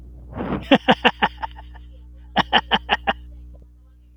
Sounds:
Laughter